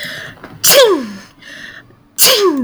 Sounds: Sneeze